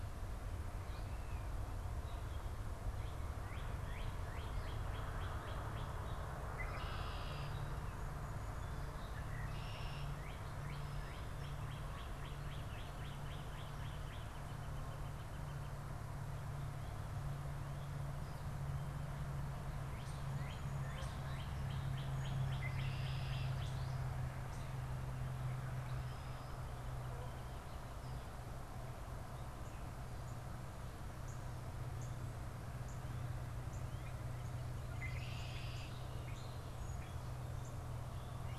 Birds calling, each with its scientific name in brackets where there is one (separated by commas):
Northern Flicker (Colaptes auratus), Northern Cardinal (Cardinalis cardinalis), Red-winged Blackbird (Agelaius phoeniceus)